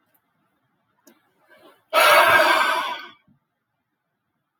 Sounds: Sigh